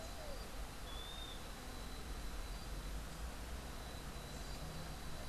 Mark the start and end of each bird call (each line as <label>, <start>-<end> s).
Western Wood-Pewee (Contopus sordidulus), 0.7-1.4 s